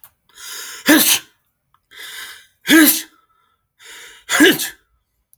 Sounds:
Sneeze